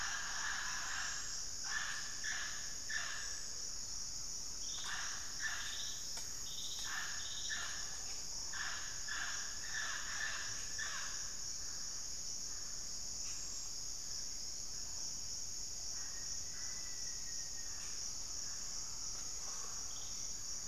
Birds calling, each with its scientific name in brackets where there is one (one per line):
Black-faced Antthrush (Formicarius analis)
Mealy Parrot (Amazona farinosa)
Hauxwell's Thrush (Turdus hauxwelli)